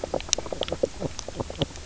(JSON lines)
{"label": "biophony, knock croak", "recorder": "SoundTrap 300"}